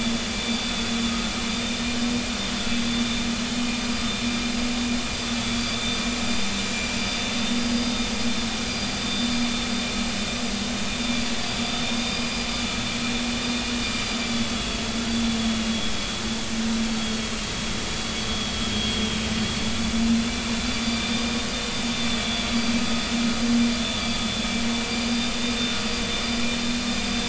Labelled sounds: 0.6	0.8	vessel noise, 3.46 to 3.52 kHz
1.5	1.9	vessel noise, 3.6 to 3.7 kHz
5.3	6.0	vessel noise, 3.5 to 4.8 kHz
7.5	8.0	vessel noise, 4.8 to 4.9 kHz
9.0	9.3	vessel noise, 3.4 to 3.6 kHz
11.0	11.3	vessel noise, 3.3 to 3.6 kHz
12.0	12.5	vessel noise, 4.8 to 4.9 kHz
14.2	14.8	vessel noise, 3.2 to 4.8 kHz
17.0	17.3	vessel noise, 3.2 to 3.4 kHz
18.7	19.0	vessel noise, 3.1 to 3.4 kHz
19.8	21.5	vessel noise, 3.4 to 4.9 kHz
22.2	22.5	vessel noise, 3.3 to 3.5 kHz
23.8	25.5	vessel noise, 2.4 to 4.9 kHz

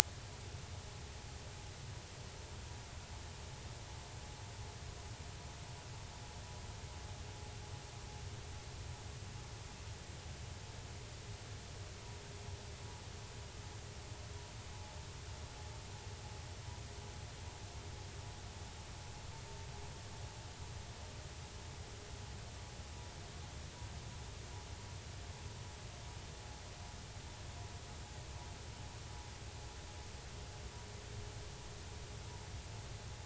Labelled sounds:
14.7	15.0	vessel noise, 0.80 to 0.99 kHz

